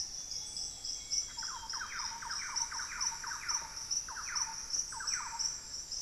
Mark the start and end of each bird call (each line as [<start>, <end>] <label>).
[0.00, 6.01] Hauxwell's Thrush (Turdus hauxwelli)
[0.00, 6.01] Little Tinamou (Crypturellus soui)
[0.00, 6.01] Ruddy Pigeon (Patagioenas subvinacea)
[0.08, 2.08] Amazonian Grosbeak (Cyanoloxia rothschildii)
[1.08, 5.78] Thrush-like Wren (Campylorhynchus turdinus)